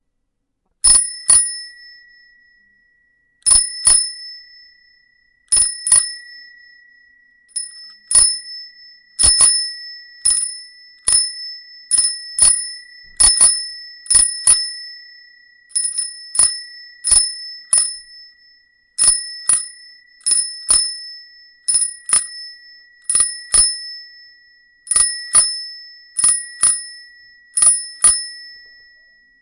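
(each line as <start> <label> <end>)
0.3 Bell ringing sharply and continuously in an irregular pattern. 28.5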